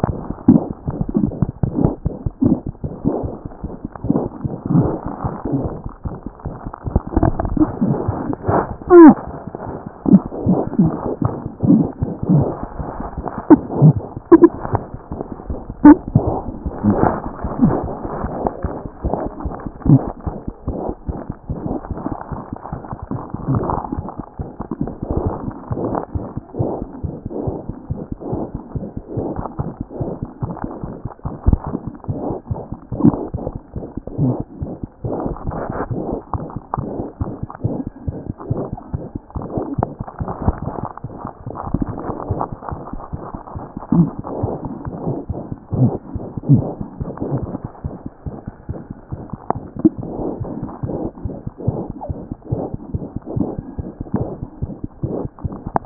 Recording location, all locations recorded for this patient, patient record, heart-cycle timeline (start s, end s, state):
mitral valve (MV)
aortic valve (AV)+mitral valve (MV)
#Age: Infant
#Sex: Female
#Height: 60.0 cm
#Weight: 7.4 kg
#Pregnancy status: False
#Murmur: Present
#Murmur locations: aortic valve (AV)+mitral valve (MV)
#Most audible location: aortic valve (AV)
#Systolic murmur timing: Early-systolic
#Systolic murmur shape: Plateau
#Systolic murmur grading: I/VI
#Systolic murmur pitch: Medium
#Systolic murmur quality: Harsh
#Diastolic murmur timing: nan
#Diastolic murmur shape: nan
#Diastolic murmur grading: nan
#Diastolic murmur pitch: nan
#Diastolic murmur quality: nan
#Outcome: Abnormal
#Campaign: 2014 screening campaign
0.00	20.25	unannotated
20.25	20.33	S1
20.33	20.46	systole
20.46	20.52	S2
20.52	20.68	diastole
20.68	20.76	S1
20.76	20.88	systole
20.88	20.95	S2
20.95	21.09	diastole
21.09	21.16	S1
21.16	21.29	systole
21.29	21.35	S2
21.35	21.49	diastole
21.49	21.57	S1
21.57	21.66	systole
21.66	21.72	S2
21.72	21.89	diastole
21.89	21.96	S1
21.96	22.05	systole
22.05	22.11	S2
22.11	22.31	diastole
22.31	22.39	S1
22.39	22.52	systole
22.52	22.57	S2
22.57	22.73	diastole
22.73	55.86	unannotated